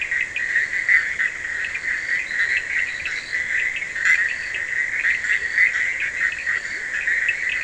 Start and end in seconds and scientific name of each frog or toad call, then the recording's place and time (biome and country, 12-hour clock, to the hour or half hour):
0.0	7.6	Boana bischoffi
0.0	7.6	Scinax perereca
0.0	7.6	Sphaenorhynchus surdus
0.3	7.6	Boana leptolineata
Atlantic Forest, Brazil, 1:30am